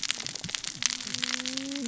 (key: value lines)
label: biophony, cascading saw
recorder: SoundTrap 600 or HydroMoth